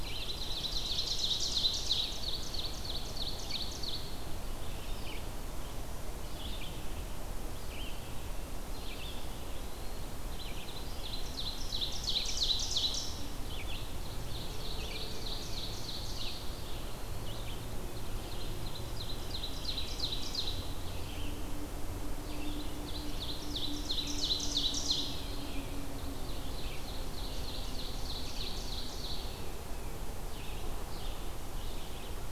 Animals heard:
Eastern Wood-Pewee (Contopus virens), Red-eyed Vireo (Vireo olivaceus), Ovenbird (Seiurus aurocapilla)

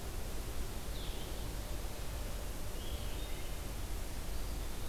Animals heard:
Blue-headed Vireo (Vireo solitarius), Eastern Wood-Pewee (Contopus virens)

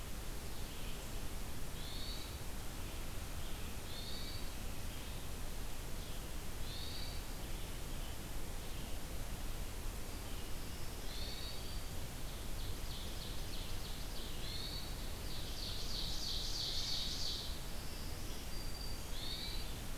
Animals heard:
Hermit Thrush (Catharus guttatus), Ovenbird (Seiurus aurocapilla), Black-throated Green Warbler (Setophaga virens)

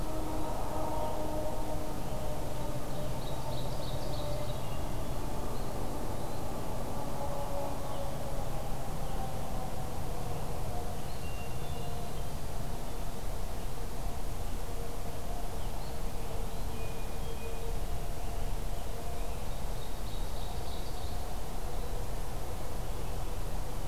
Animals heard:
Hermit Thrush (Catharus guttatus), Ovenbird (Seiurus aurocapilla)

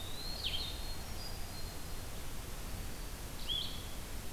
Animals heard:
Eastern Wood-Pewee (Contopus virens), Blue-headed Vireo (Vireo solitarius), Hermit Thrush (Catharus guttatus)

